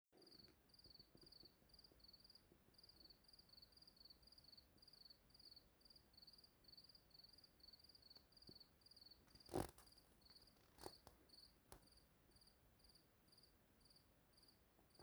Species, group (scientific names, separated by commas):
Gryllus campestris, Orthoptera